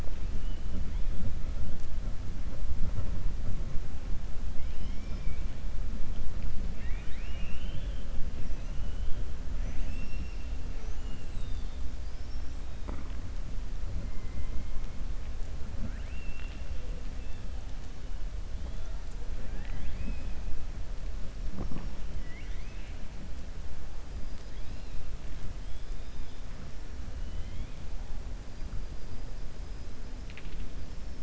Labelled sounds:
4.6	5.4	killer whale, 1.4 to 3.3 kHz
6.7	8.1	killer whale, 1.7 to 3.9 kHz
8.7	9.1	killer whale, 2.9 to 3.3 kHz
9.5	10.4	killer whale, 1.8 to 3.5 kHz
19.4	20.3	killer whale, 0.80 to 4.0 kHz
22.1	23.0	killer whale, 1.7 to 4.4 kHz

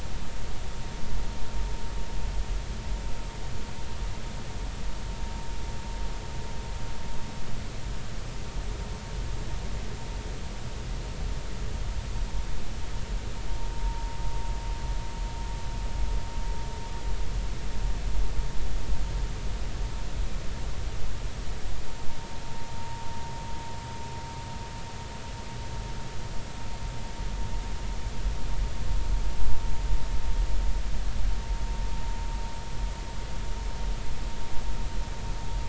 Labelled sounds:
22.8	23.1	vessel noise, 0.90 to 1.1 kHz

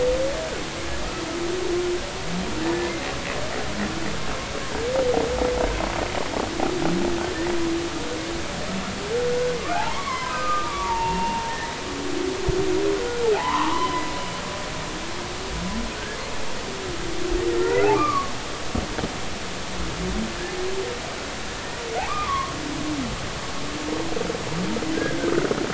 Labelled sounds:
9.7	11.8	humpback whale, 0.80 to 2.8 kHz
13.3	14.0	humpback whale, 0.80 to 3.1 kHz
17.5	18.3	humpback whale, 1.0 to 2.2 kHz
22.0	22.5	humpback whale, 0.80 to 1.3 kHz
25.0	25.3	humpback whale, 1.5 to 1.7 kHz

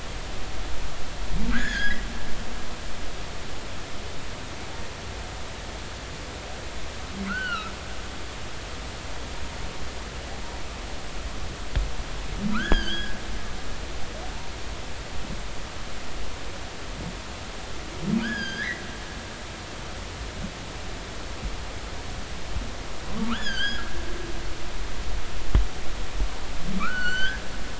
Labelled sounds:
1.5	2.0	humpback whale, 1.2 to 5.1 kHz
7.3	7.7	humpback whale, 1.2 to 3.1 kHz
12.5	13.2	humpback whale, 1.1 to 6.8 kHz
18.2	18.8	humpback whale, 1.4 to 6.6 kHz
19.1	19.6	humpback whale, 4.3 to 5.1 kHz
23.1	23.9	humpback whale, 0.86 to 7.0 kHz
26.8	27.4	humpback whale, 1.1 to 6.2 kHz

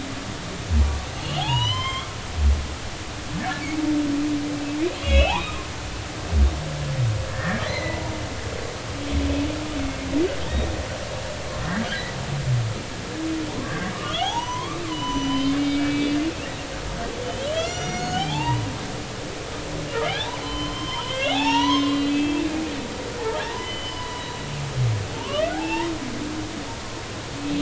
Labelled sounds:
1.4	2.1	humpback whale, 0.80 to 6.2 kHz
5.0	5.6	humpback whale, 2.3 to 3.5 kHz
7.3	8.0	humpback whale, 1.6 to 4.3 kHz
11.6	12.2	humpback whale, 1.4 to 2.0 kHz
13.5	16.2	humpback whale, 0.80 to 6.0 kHz
17.2	18.7	humpback whale, 0.80 to 7.3 kHz
20.1	22.4	humpback whale, 0.80 to 5.8 kHz
23.1	24.3	humpback whale, 0.80 to 3.1 kHz
25.2	25.9	humpback whale, 0.80 to 2.9 kHz

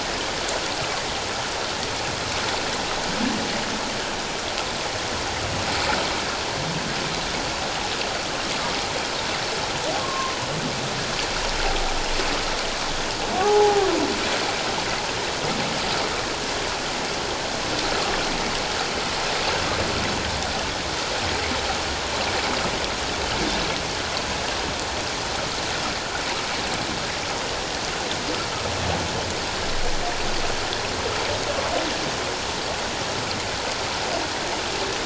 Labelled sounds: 10.0	10.4	humpback whale, 0.97 to 1.1 kHz
13.3	13.9	humpback whale, 0.78 to 1.3 kHz

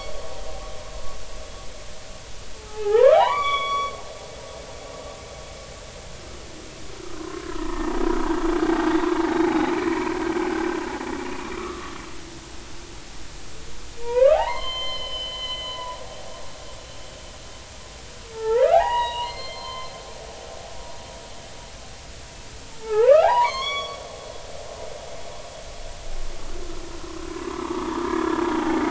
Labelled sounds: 2.5	3.9	humpback whale, 0.80 to 5.8 kHz
7.1	8.0	humpback whale, 0.83 to 1.9 kHz
8.9	9.7	humpback whale, 0.80 to 2.4 kHz
11.6	12.0	humpback whale, 1.1 to 1.4 kHz
14.0	16.0	humpback whale, 0.80 to 4.3 kHz
18.3	20.0	humpback whale, 0.80 to 4.4 kHz
22.8	24.0	humpback whale, 0.80 to 8.0 kHz
27.3	28.2	humpback whale, 0.83 to 1.3 kHz

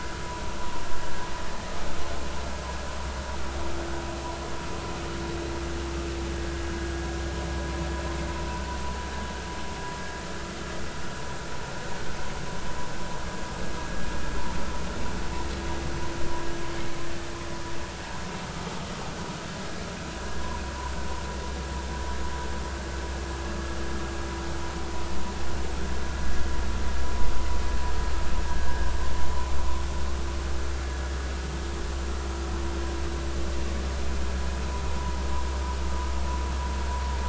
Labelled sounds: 28.7	28.9	vessel noise, 1.5 to 1.8 kHz

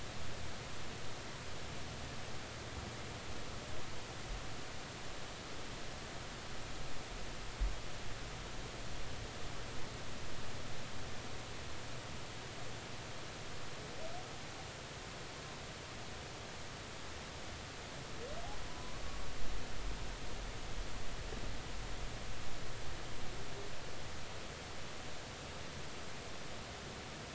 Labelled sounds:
18.7	19.0	humpback whale, 0.96 to 1.1 kHz

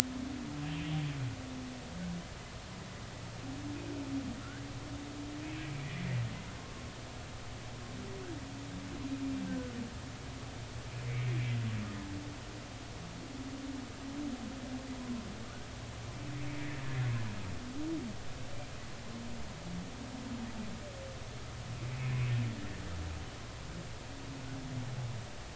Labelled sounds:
4.4	4.7	humpback whale, 1.3 to 1.7 kHz
9.5	9.7	humpback whale, 1.4 to 1.6 kHz
11.0	11.3	humpback whale, 2.0 to 2.4 kHz
15.0	15.2	humpback whale, 0.96 to 1.1 kHz

